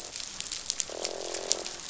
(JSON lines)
{"label": "biophony, croak", "recorder": "SoundTrap 500"}